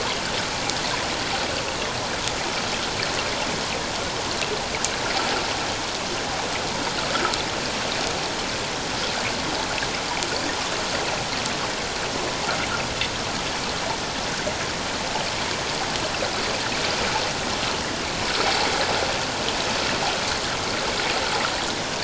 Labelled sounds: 7.1	7.4	water noise, 1.2 to 1.6 kHz

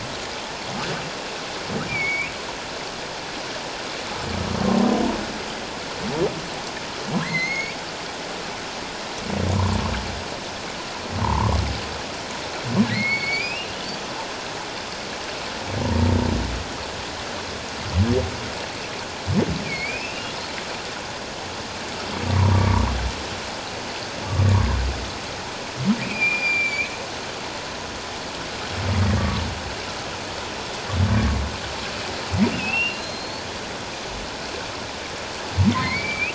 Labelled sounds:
1.9	2.3	humpback whale, 2.1 to 2.5 kHz
7.2	7.8	humpback whale, 1.6 to 6.8 kHz
11.2	11.6	humpback whale, 0.84 to 1.2 kHz
12.9	13.7	humpback whale, 1.8 to 5.1 kHz
19.6	20.3	humpback whale, 2.1 to 2.8 kHz
22.3	22.8	humpback whale, 0.91 to 1.2 kHz
24.5	24.8	humpback whale, 0.91 to 1.2 kHz
26.0	26.9	humpback whale, 2.2 to 7.2 kHz
32.5	33.4	humpback whale, 2.5 to 4.5 kHz
35.7	36.3	humpback whale, 0.97 to 2.9 kHz

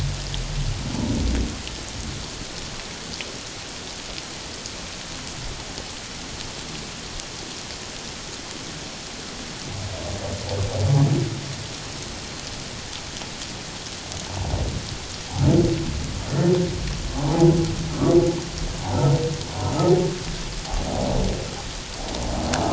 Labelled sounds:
14.3	14.5	humpback whale, 0.78 to 0.97 kHz
17.3	17.5	humpback whale, 0.78 to 1.0 kHz

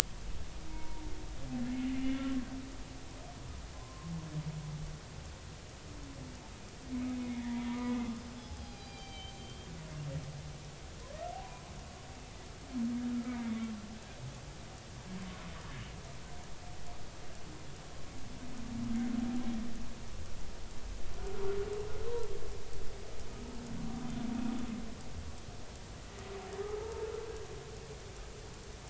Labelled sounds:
0.7	1.0	humpback whale, 0.86 to 1.0 kHz
3.7	4.1	humpback whale, 0.96 to 1.1 kHz
6.9	9.7	humpback whale, 0.80 to 6.3 kHz
11.3	11.6	humpback whale, 0.80 to 1.1 kHz
13.1	13.5	humpback whale, 1.2 to 2.3 kHz
26.8	27.1	humpback whale, 0.83 to 0.96 kHz

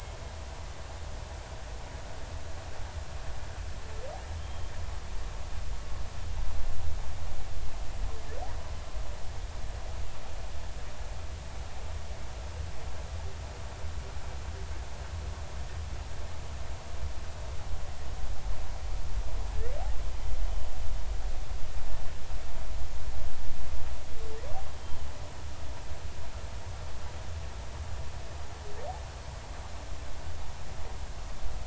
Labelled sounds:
4.3	4.7	humpback whale, 3.0 to 3.3 kHz
24.8	25.1	humpback whale, 3.0 to 3.2 kHz

